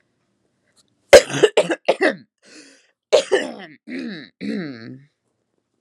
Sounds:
Throat clearing